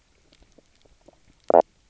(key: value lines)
label: biophony, knock croak
recorder: SoundTrap 300